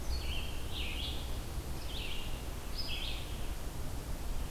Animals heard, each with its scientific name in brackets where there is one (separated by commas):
Red-eyed Vireo (Vireo olivaceus)